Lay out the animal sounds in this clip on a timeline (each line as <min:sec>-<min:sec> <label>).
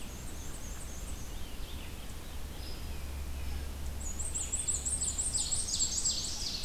0:00.0-0:01.3 Black-and-white Warbler (Mniotilta varia)
0:00.0-0:06.6 Red-eyed Vireo (Vireo olivaceus)
0:03.8-0:06.5 Black-and-white Warbler (Mniotilta varia)
0:04.3-0:06.6 Ovenbird (Seiurus aurocapilla)